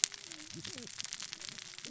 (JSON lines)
{"label": "biophony, cascading saw", "recorder": "SoundTrap 600 or HydroMoth"}